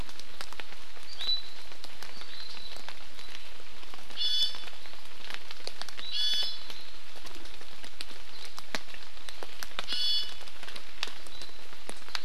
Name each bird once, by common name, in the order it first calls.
Hawaii Amakihi, Iiwi